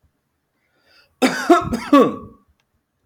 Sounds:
Cough